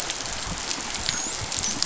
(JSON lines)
{"label": "biophony, dolphin", "recorder": "SoundTrap 500"}